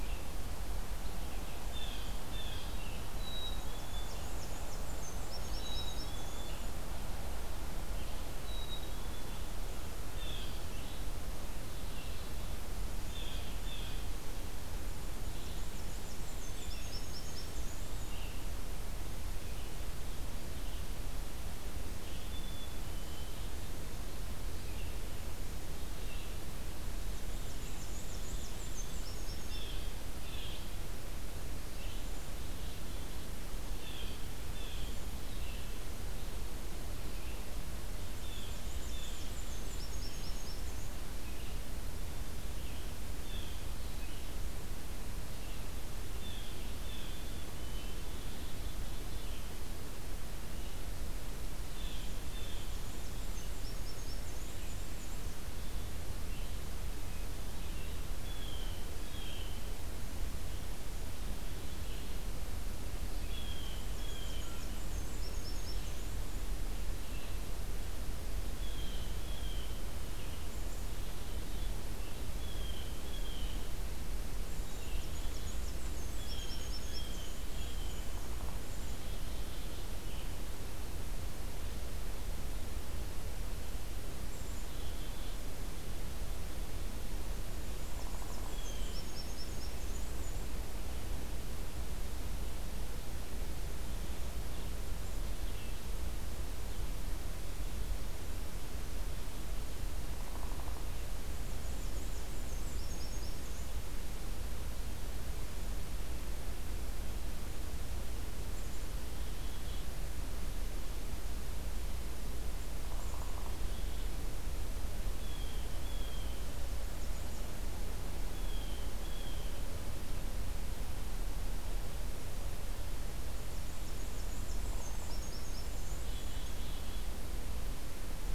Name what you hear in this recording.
Blue-headed Vireo, Blue Jay, Black-capped Chickadee, Black-and-white Warbler, Downy Woodpecker